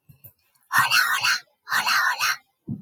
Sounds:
Sigh